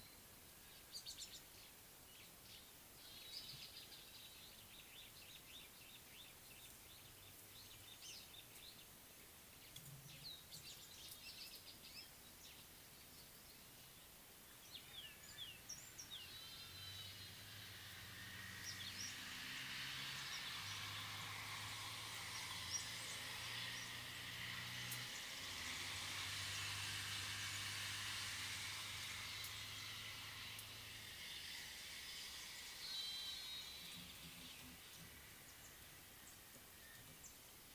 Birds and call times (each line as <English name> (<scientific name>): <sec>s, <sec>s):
Rattling Cisticola (Cisticola chiniana): 1.2s
Superb Starling (Lamprotornis superbus): 5.6s